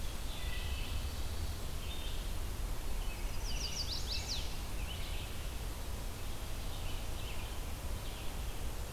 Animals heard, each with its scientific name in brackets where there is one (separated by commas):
Wood Thrush (Hylocichla mustelina), American Robin (Turdus migratorius), Chestnut-sided Warbler (Setophaga pensylvanica)